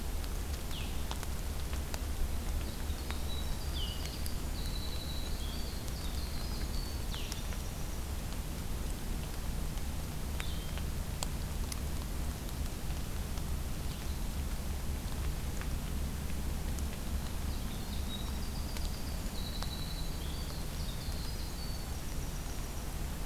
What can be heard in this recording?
Blue-headed Vireo, Winter Wren